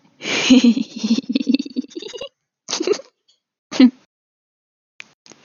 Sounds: Laughter